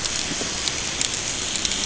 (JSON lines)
{"label": "ambient", "recorder": "HydroMoth"}